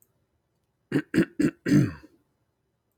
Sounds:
Throat clearing